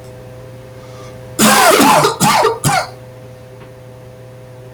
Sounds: Cough